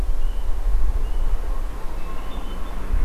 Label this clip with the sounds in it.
Hermit Thrush